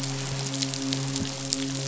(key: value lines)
label: biophony, midshipman
recorder: SoundTrap 500